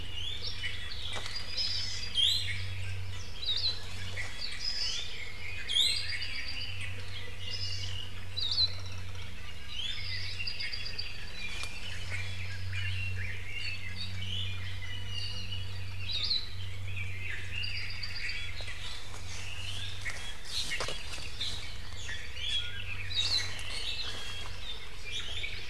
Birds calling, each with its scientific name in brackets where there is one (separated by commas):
Iiwi (Drepanis coccinea), Hawaii Amakihi (Chlorodrepanis virens), Hawaii Akepa (Loxops coccineus), Red-billed Leiothrix (Leiothrix lutea), Apapane (Himatione sanguinea)